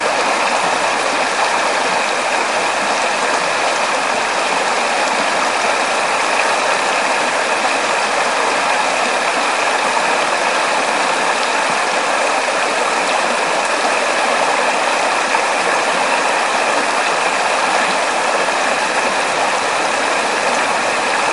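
Water falling heavily down a high waterfall. 0:00.0 - 0:21.2

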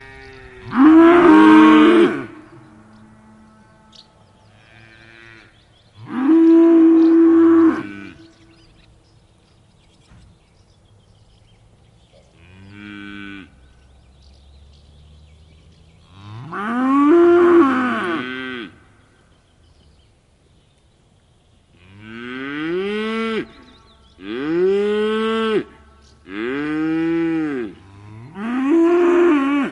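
An animal is making loud sounds nearby. 0:00.5 - 0:02.6
An animal sounds in the distance. 0:04.4 - 0:05.7
An animal is making sounds nearby. 0:05.9 - 0:08.2
Birds chirping. 0:08.4 - 0:12.4
A cow is mooing. 0:12.4 - 0:13.7
Cows are mooing. 0:16.2 - 0:19.0
Cows mooing with short pauses. 0:21.6 - 0:29.7

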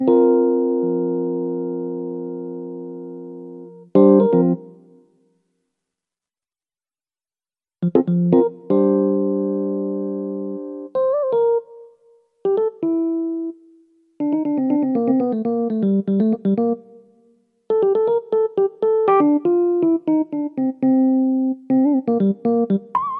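A piano plays and gradually fades away. 0:00.0 - 0:03.9
A piano playing a rhythmic melody indoors. 0:03.9 - 0:04.6
A piano playing rhythmically indoors. 0:07.8 - 0:11.7
A piano playing rhythmically indoors. 0:12.3 - 0:16.8
A piano playing rhythmically indoors. 0:17.7 - 0:23.2

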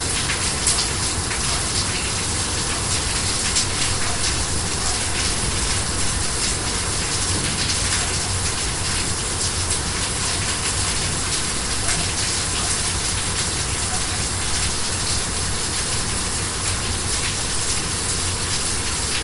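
The monotonous sound of heavy rain splashing on a roof. 0:00.0 - 0:19.2

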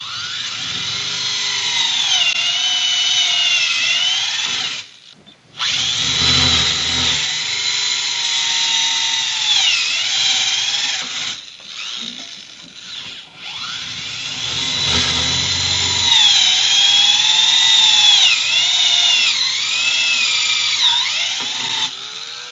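A dentist drill squeaks loudly with occasional quieter moments. 0:00.0 - 0:22.5

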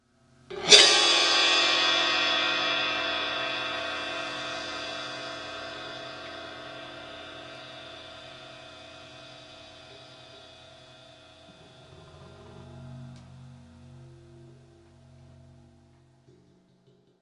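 A powerful cymbal crash with a bright, metallic burst that gradually fades. 0:00.5 - 0:14.8

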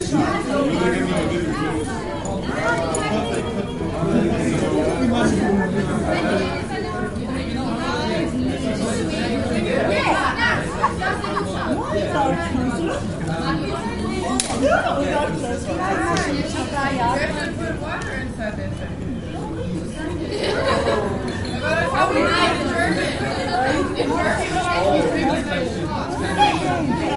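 A lively gathering with people talking over each other. 0:00.0 - 0:27.2
Many people are talking simultaneously. 0:00.0 - 0:27.2
People are conversing in a restaurant or cafe without background music. 0:00.0 - 0:27.2

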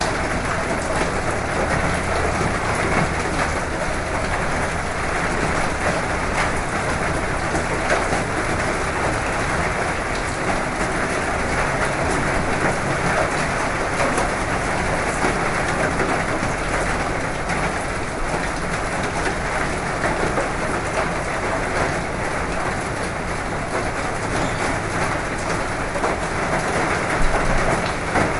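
Heavy rain continuously falls outside, making sounds as it hits the roof. 0:00.0 - 0:28.4

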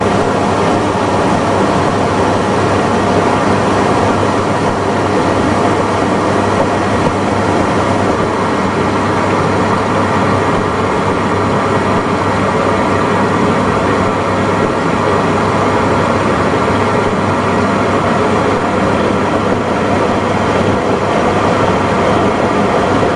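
Loud, steady humming and whirring of a machine. 0:00.0 - 0:23.2

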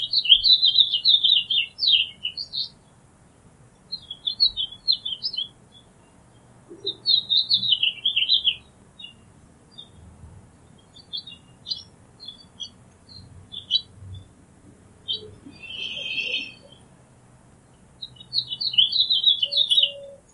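A bird singing outdoors. 0:00.0 - 0:02.8
A bird singing outdoors. 0:03.8 - 0:05.6
A bird singing outdoors. 0:06.8 - 0:08.8
A bird sings quietly outdoors. 0:11.1 - 0:14.3
A bird sings quietly outdoors. 0:15.0 - 0:16.6
A bird singing outdoors. 0:17.9 - 0:20.3

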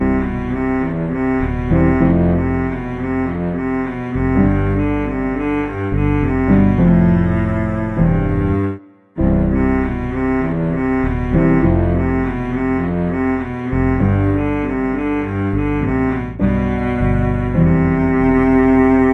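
Several instruments are being played together in one room. 0:00.0 - 0:19.1

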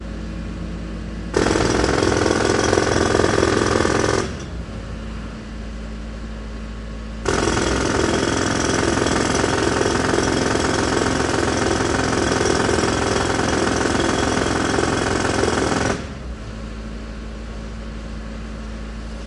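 A jackhammer breaks up concrete with a loud, repetitive pounding sound. 0:00.0 - 0:19.3
Jackhammering continues at a steady pace with intermittent pauses, creating a loud and persistent noise until it stops. 0:00.0 - 0:19.3
The sound is harsh, loud, and jarring. 0:00.0 - 0:19.3

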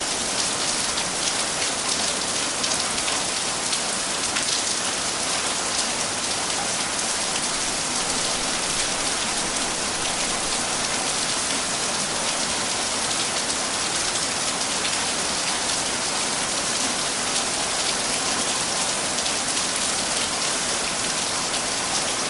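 Heavy rain is falling. 0:00.0 - 0:22.3

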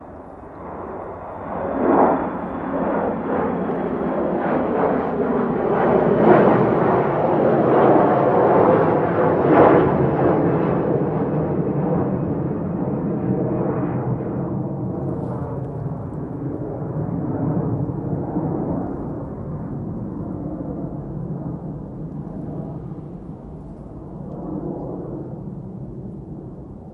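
A plane taking off and fading away. 0:00.0 - 0:26.9

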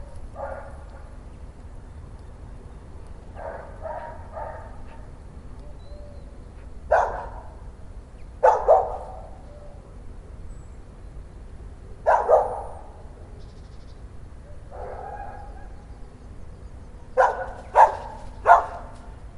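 A dog barks once. 0:00.0 - 0:00.9
A dog barks three times. 0:03.3 - 0:05.0
A dog barks loudly. 0:06.8 - 0:07.7
A dog barks loudly twice. 0:08.3 - 0:09.5
A dog barks loudly twice. 0:12.0 - 0:12.9
A bird chirps rapidly. 0:13.3 - 0:14.3
A dog barks with an echo. 0:14.5 - 0:16.0
A dog barks loudly three times. 0:17.0 - 0:19.4

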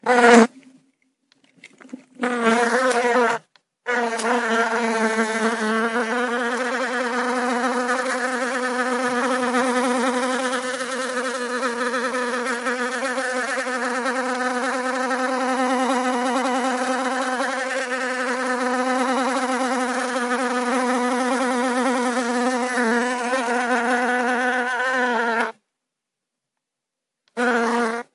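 A fly or bee is rapidly flying inside with occasional pauses. 0:00.0 - 0:28.1

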